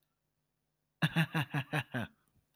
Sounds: Laughter